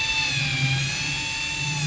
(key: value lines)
label: anthrophony, boat engine
recorder: SoundTrap 500